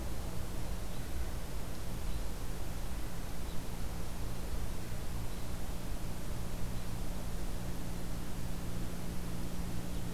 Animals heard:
forest ambience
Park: Acadia National Park